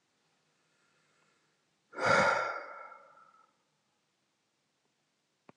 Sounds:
Sigh